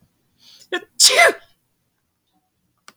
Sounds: Sneeze